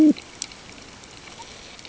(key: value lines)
label: ambient
recorder: HydroMoth